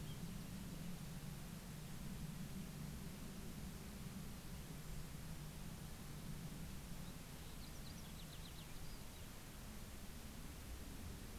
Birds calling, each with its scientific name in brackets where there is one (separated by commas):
Cassin's Finch (Haemorhous cassinii)